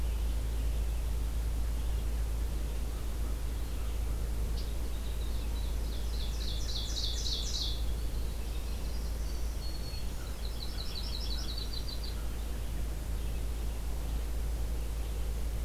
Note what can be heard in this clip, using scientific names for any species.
Turdus migratorius, Vireo olivaceus, Corvus brachyrhynchos, Troglodytes hiemalis, Seiurus aurocapilla, Setophaga virens, Setophaga coronata